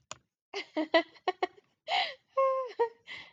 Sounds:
Laughter